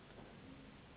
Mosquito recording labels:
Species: Anopheles gambiae s.s.; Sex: female; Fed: unfed; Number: one; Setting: insect culture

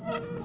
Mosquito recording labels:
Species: Aedes albopictus; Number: several; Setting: insect culture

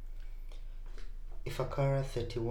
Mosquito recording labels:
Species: Culex pipiens complex; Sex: female; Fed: unfed; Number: one; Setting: cup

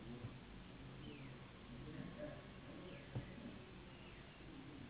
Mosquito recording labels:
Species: Anopheles gambiae s.s.; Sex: female; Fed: unfed; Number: one; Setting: insect culture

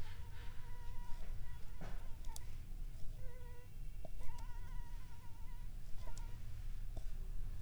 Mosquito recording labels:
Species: Anopheles arabiensis; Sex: female; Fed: unfed; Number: one; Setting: cup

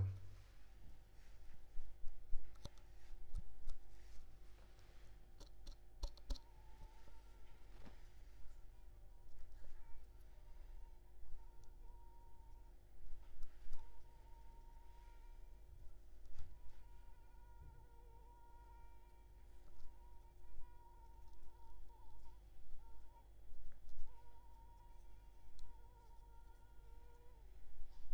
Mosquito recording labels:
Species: Culex pipiens complex; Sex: female; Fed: unfed; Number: one; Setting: cup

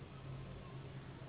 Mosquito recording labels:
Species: Anopheles gambiae s.s.; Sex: female; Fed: unfed; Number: one; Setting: insect culture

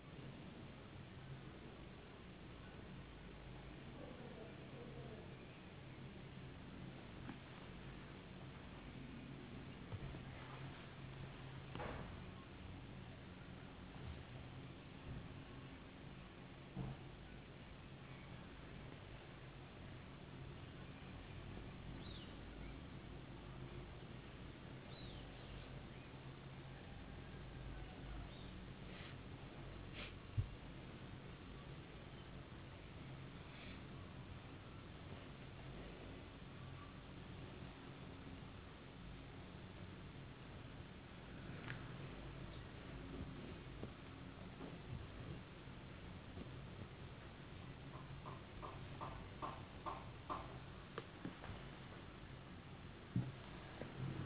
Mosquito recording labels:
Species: no mosquito; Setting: insect culture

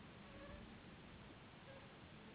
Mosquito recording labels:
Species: Anopheles gambiae s.s.; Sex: female; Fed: unfed; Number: one; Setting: insect culture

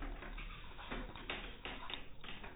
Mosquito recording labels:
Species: no mosquito; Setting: cup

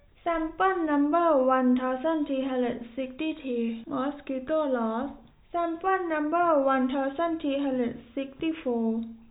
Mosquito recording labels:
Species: no mosquito; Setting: cup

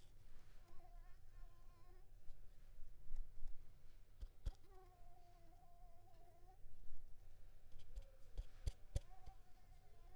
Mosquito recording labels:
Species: Anopheles arabiensis; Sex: female; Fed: unfed; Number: one; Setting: cup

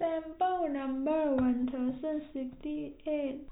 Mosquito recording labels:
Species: no mosquito; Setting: cup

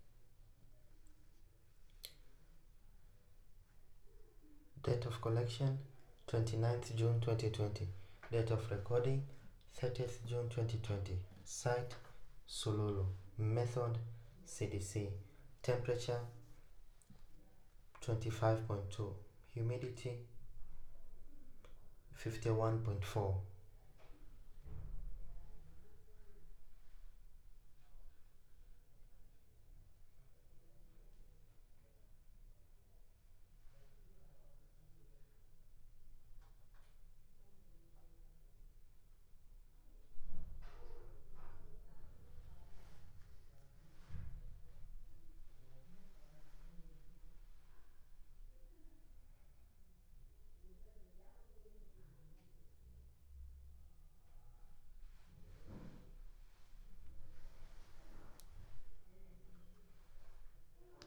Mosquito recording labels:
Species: no mosquito; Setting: cup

